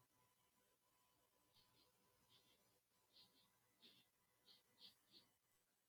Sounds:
Sniff